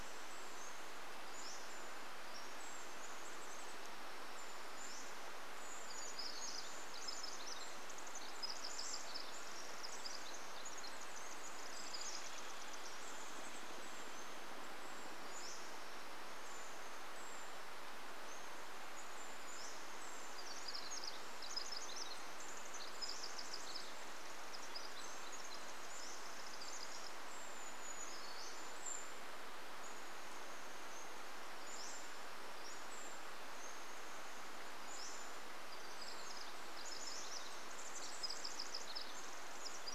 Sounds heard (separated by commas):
Pacific-slope Flycatcher song, woodpecker drumming, Pacific Wren song, Brown Creeper call, Chestnut-backed Chickadee call